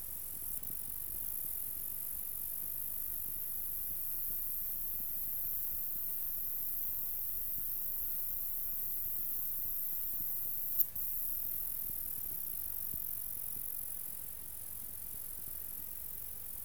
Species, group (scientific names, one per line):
Polysarcus denticauda
Orthoptera